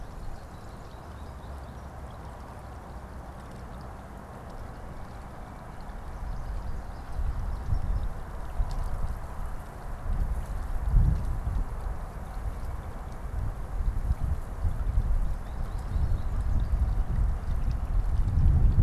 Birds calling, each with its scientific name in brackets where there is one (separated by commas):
American Goldfinch (Spinus tristis)